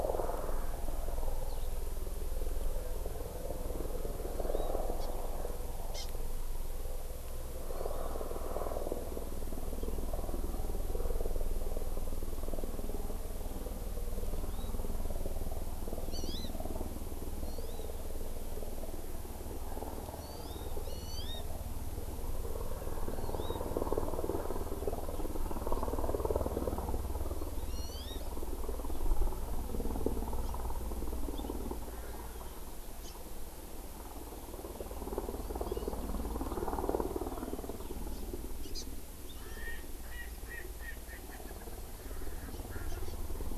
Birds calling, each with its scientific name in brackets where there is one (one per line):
Eurasian Skylark (Alauda arvensis)
Hawaii Amakihi (Chlorodrepanis virens)
Erckel's Francolin (Pternistis erckelii)